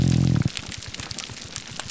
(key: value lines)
label: biophony, grouper groan
recorder: SoundTrap 300